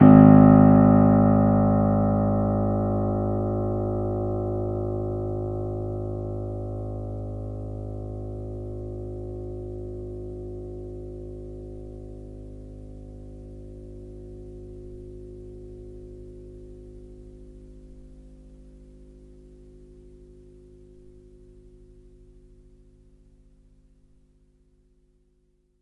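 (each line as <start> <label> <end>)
0.0 A piano key is played and its sound fades away slowly. 24.4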